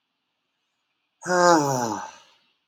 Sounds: Sigh